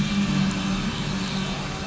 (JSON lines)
{"label": "anthrophony, boat engine", "recorder": "SoundTrap 500"}